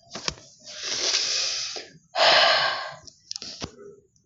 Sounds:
Sigh